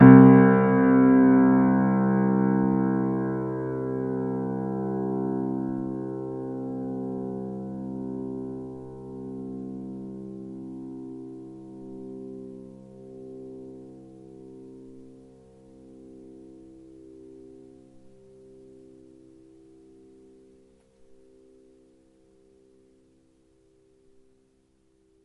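A piano note plays and fades. 0.0 - 25.0

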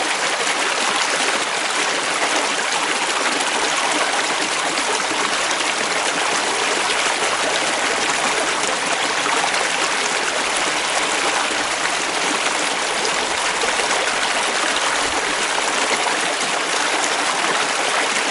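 Water flowing in a river. 0.0 - 18.3

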